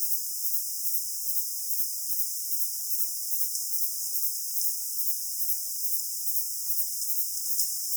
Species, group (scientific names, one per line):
Platycleis intermedia
Orthoptera